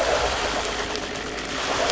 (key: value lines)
label: anthrophony, boat engine
recorder: SoundTrap 500